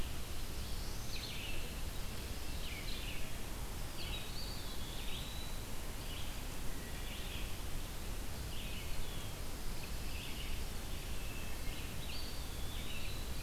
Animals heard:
Black-throated Blue Warbler (Setophaga caerulescens)
Red-eyed Vireo (Vireo olivaceus)
Wood Thrush (Hylocichla mustelina)
Eastern Wood-Pewee (Contopus virens)
Pine Warbler (Setophaga pinus)

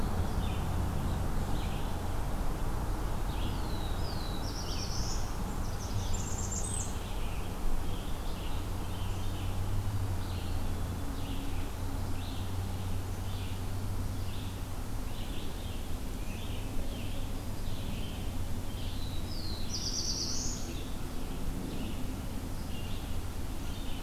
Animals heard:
Red-eyed Vireo (Vireo olivaceus)
Scarlet Tanager (Piranga olivacea)
Black-throated Blue Warbler (Setophaga caerulescens)
Blackburnian Warbler (Setophaga fusca)

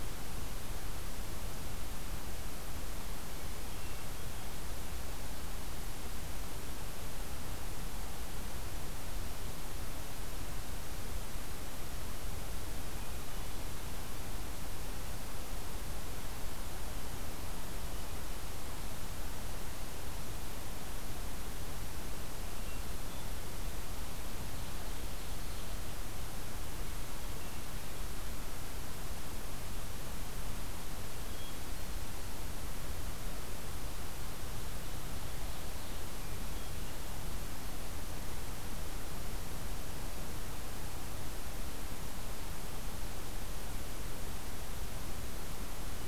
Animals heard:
Ovenbird (Seiurus aurocapilla)
Hermit Thrush (Catharus guttatus)

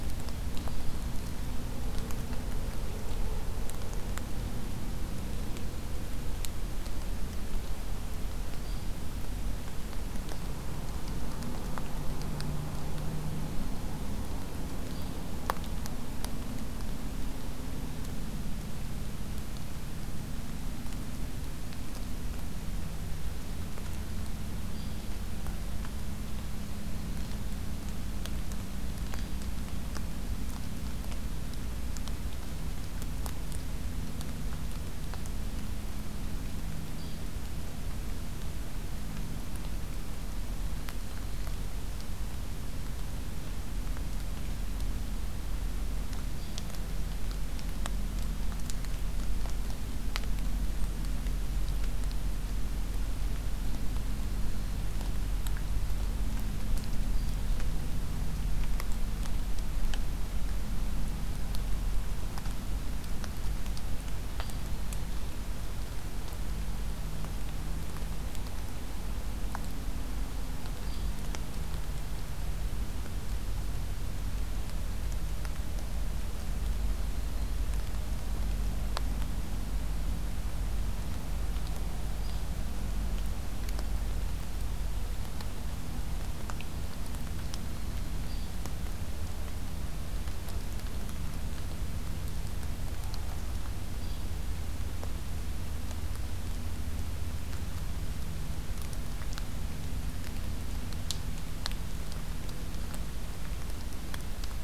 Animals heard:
Hairy Woodpecker (Dryobates villosus)

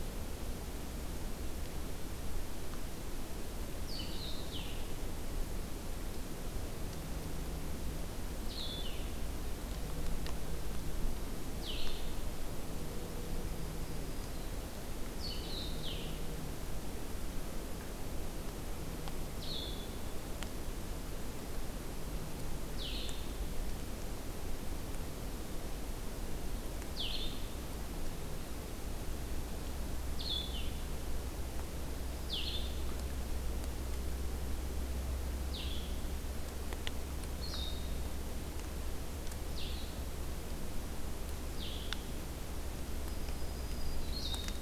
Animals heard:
Black-throated Green Warbler (Setophaga virens)
Blue-headed Vireo (Vireo solitarius)

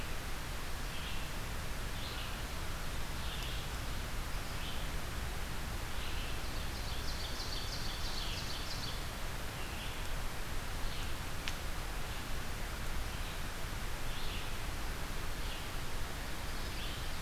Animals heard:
American Crow (Corvus brachyrhynchos)
Red-eyed Vireo (Vireo olivaceus)
Ovenbird (Seiurus aurocapilla)

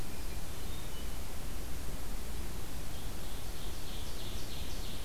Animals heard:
Hermit Thrush (Catharus guttatus)
Ovenbird (Seiurus aurocapilla)

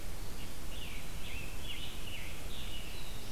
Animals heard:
Black-throated Blue Warbler (Setophaga caerulescens)
Scarlet Tanager (Piranga olivacea)

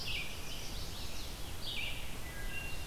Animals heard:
American Robin (Turdus migratorius)
Wood Thrush (Hylocichla mustelina)
Red-eyed Vireo (Vireo olivaceus)
Chestnut-sided Warbler (Setophaga pensylvanica)

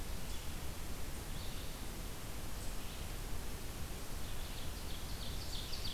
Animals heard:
Ovenbird (Seiurus aurocapilla)
Red-eyed Vireo (Vireo olivaceus)

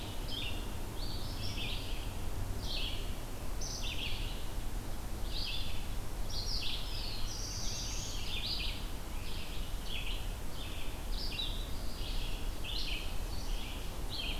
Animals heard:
Black-throated Blue Warbler (Setophaga caerulescens)
Red-eyed Vireo (Vireo olivaceus)

